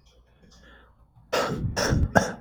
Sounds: Cough